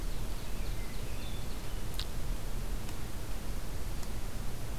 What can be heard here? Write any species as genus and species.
Seiurus aurocapilla, Catharus guttatus